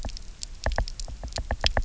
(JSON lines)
{"label": "biophony, knock", "recorder": "SoundTrap 300"}